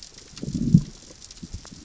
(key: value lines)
label: biophony, growl
recorder: SoundTrap 600 or HydroMoth